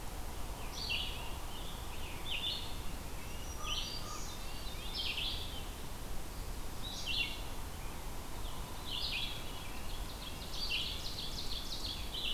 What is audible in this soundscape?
Red-eyed Vireo, Scarlet Tanager, Red-breasted Nuthatch, Black-throated Green Warbler, Common Raven, Veery, Ovenbird